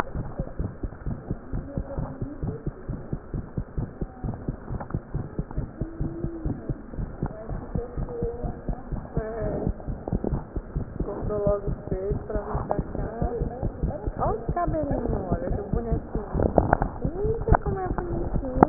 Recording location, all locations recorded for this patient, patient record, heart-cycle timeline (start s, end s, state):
mitral valve (MV)
aortic valve (AV)+mitral valve (MV)
#Age: Child
#Sex: Female
#Height: 76.0 cm
#Weight: 10.5 kg
#Pregnancy status: False
#Murmur: Absent
#Murmur locations: nan
#Most audible location: nan
#Systolic murmur timing: nan
#Systolic murmur shape: nan
#Systolic murmur grading: nan
#Systolic murmur pitch: nan
#Systolic murmur quality: nan
#Diastolic murmur timing: nan
#Diastolic murmur shape: nan
#Diastolic murmur grading: nan
#Diastolic murmur pitch: nan
#Diastolic murmur quality: nan
#Outcome: Abnormal
#Campaign: 2015 screening campaign
0.00	0.56	unannotated
0.56	0.70	S1
0.70	0.80	systole
0.80	0.90	S2
0.90	1.06	diastole
1.06	1.18	S1
1.18	1.29	systole
1.29	1.38	S2
1.38	1.52	diastole
1.52	1.62	S1
1.62	1.74	systole
1.74	1.86	S2
1.86	1.96	diastole
1.96	2.07	S1
2.07	2.20	systole
2.20	2.28	S2
2.28	2.39	diastole
2.39	2.50	S1
2.50	2.65	systole
2.65	2.74	S2
2.74	2.87	diastole
2.87	2.97	S1
2.97	3.10	systole
3.10	3.20	S2
3.20	3.32	diastole
3.32	3.44	S1
3.44	3.55	systole
3.55	3.66	S2
3.66	3.75	diastole
3.75	3.88	S1
3.88	3.99	systole
3.99	4.08	S2
4.08	4.23	diastole
4.23	4.33	S1
4.33	4.46	systole
4.46	4.56	S2
4.56	4.70	diastole
4.70	4.78	S1
4.78	4.92	systole
4.92	5.00	S2
5.00	5.13	diastole
5.13	5.24	S1
5.24	5.36	systole
5.36	5.46	S2
5.46	5.56	diastole
5.56	5.68	S1
5.68	5.78	systole
5.78	5.88	S2
5.88	5.99	diastole
5.99	6.07	S1
6.07	6.22	systole
6.22	6.32	S2
6.32	6.44	diastole
6.44	6.54	S1
6.54	6.67	systole
6.67	6.78	S2
6.78	6.98	diastole
6.98	7.10	S1
7.10	7.22	systole
7.22	7.32	S2
7.32	18.69	unannotated